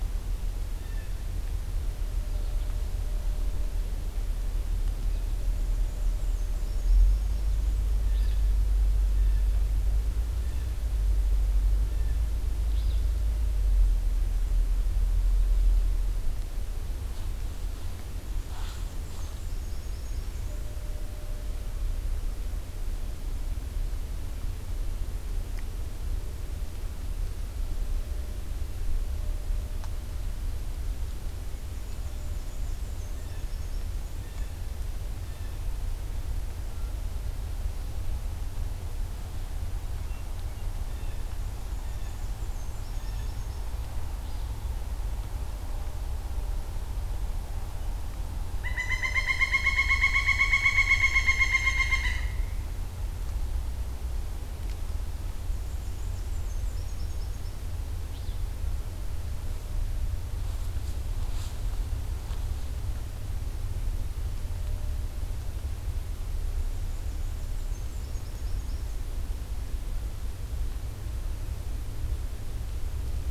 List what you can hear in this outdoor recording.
Blue Jay, American Goldfinch, Black-and-white Warbler, Alder Flycatcher, Pileated Woodpecker